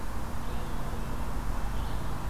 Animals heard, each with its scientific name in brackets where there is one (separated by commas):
Red-eyed Vireo (Vireo olivaceus), Red-breasted Nuthatch (Sitta canadensis)